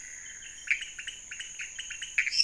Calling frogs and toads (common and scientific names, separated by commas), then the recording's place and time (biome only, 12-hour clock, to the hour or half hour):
pointedbelly frog (Leptodactylus podicipinus), Pithecopus azureus
Cerrado, midnight